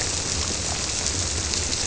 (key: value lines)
label: biophony
recorder: SoundTrap 300